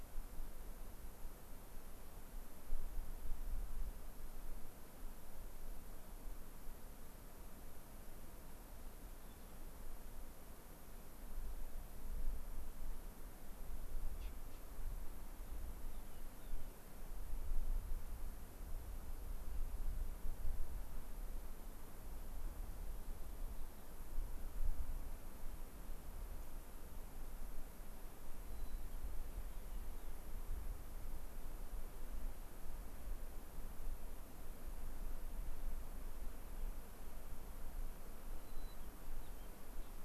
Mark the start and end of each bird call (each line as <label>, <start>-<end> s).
unidentified bird, 9.2-9.5 s
Rock Wren (Salpinctes obsoletus), 15.9-16.8 s
unidentified bird, 26.4-26.5 s
White-crowned Sparrow (Zonotrichia leucophrys), 28.5-30.2 s
White-crowned Sparrow (Zonotrichia leucophrys), 38.4-39.5 s